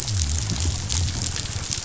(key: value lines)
label: biophony
recorder: SoundTrap 500